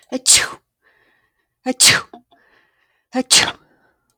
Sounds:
Sneeze